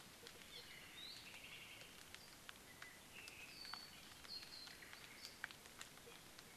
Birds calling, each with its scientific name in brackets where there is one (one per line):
Apapane (Himatione sanguinea)
Omao (Myadestes obscurus)